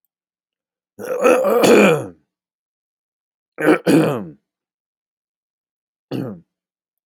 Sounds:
Throat clearing